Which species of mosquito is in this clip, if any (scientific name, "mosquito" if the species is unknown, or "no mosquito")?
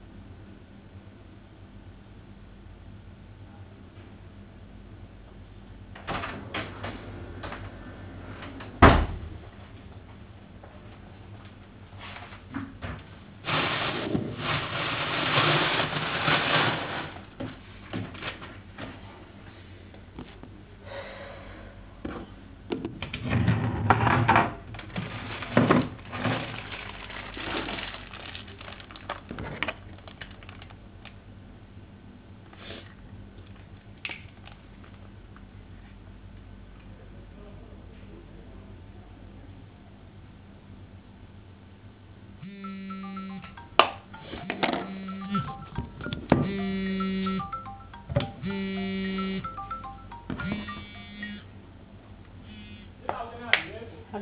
no mosquito